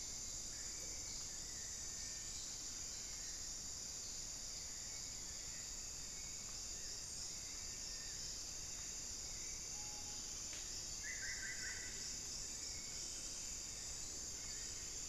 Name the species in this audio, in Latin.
Turdus hauxwelli, Crypturellus cinereus, Lipaugus vociferans, Cacicus solitarius